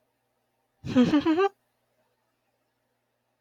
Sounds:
Laughter